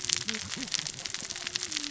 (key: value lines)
label: biophony, cascading saw
recorder: SoundTrap 600 or HydroMoth